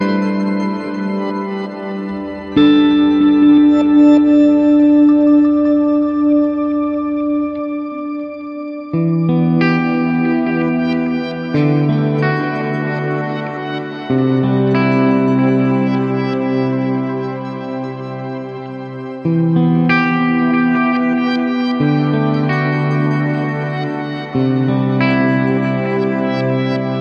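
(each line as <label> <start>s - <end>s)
Ambient sci-fi music plays loudly and repeatedly. 0.0s - 27.0s
Guitar strums ambient chords loudly and repeatedly nearby. 8.9s - 27.0s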